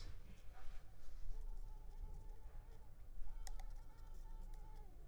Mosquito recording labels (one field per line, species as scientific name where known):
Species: Culex pipiens complex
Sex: female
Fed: unfed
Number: one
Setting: cup